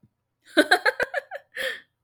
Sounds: Laughter